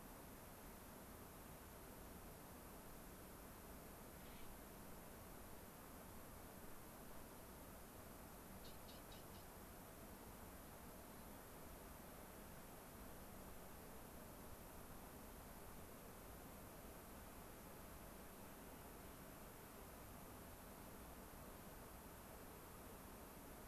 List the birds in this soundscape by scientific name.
Nucifraga columbiana